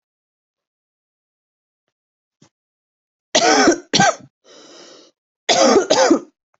{"expert_labels": [{"quality": "good", "cough_type": "wet", "dyspnea": false, "wheezing": false, "stridor": false, "choking": false, "congestion": false, "nothing": true, "diagnosis": "lower respiratory tract infection", "severity": "mild"}], "age": 30, "gender": "female", "respiratory_condition": true, "fever_muscle_pain": true, "status": "symptomatic"}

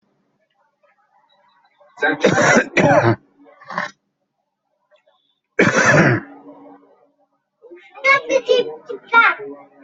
{"expert_labels": [{"quality": "ok", "cough_type": "dry", "dyspnea": false, "wheezing": false, "stridor": false, "choking": false, "congestion": false, "nothing": true, "diagnosis": "upper respiratory tract infection", "severity": "mild"}], "age": 42, "gender": "male", "respiratory_condition": false, "fever_muscle_pain": false, "status": "healthy"}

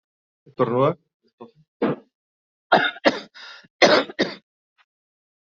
{"expert_labels": [{"quality": "good", "cough_type": "dry", "dyspnea": false, "wheezing": false, "stridor": false, "choking": false, "congestion": false, "nothing": true, "diagnosis": "upper respiratory tract infection", "severity": "mild"}], "age": 34, "gender": "female", "respiratory_condition": false, "fever_muscle_pain": false, "status": "healthy"}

